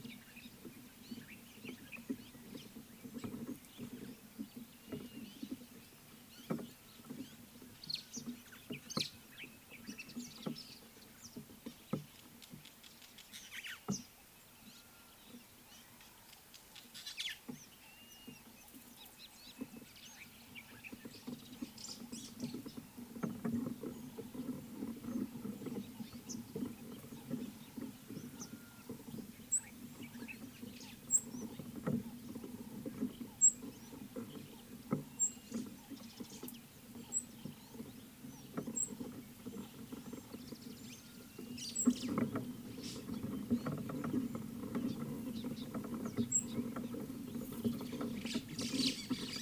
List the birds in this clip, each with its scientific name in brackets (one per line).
Rüppell's Starling (Lamprotornis purpuroptera)
Blue-naped Mousebird (Urocolius macrourus)
Scarlet-chested Sunbird (Chalcomitra senegalensis)